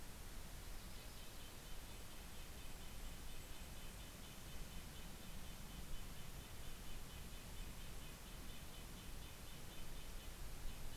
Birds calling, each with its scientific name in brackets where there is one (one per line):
Golden-crowned Kinglet (Regulus satrapa)
Yellow-rumped Warbler (Setophaga coronata)